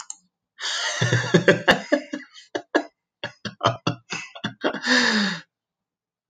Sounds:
Laughter